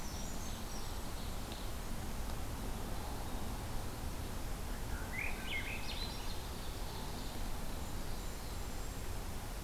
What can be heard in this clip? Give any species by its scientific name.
Certhia americana, Regulus satrapa, Seiurus aurocapilla, Catharus ustulatus, Setophaga caerulescens